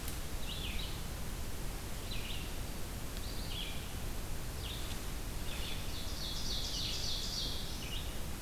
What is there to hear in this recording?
Red-eyed Vireo, Ovenbird